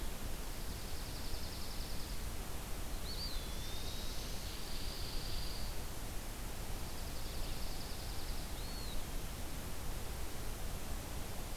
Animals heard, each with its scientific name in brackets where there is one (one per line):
Dark-eyed Junco (Junco hyemalis)
Eastern Wood-Pewee (Contopus virens)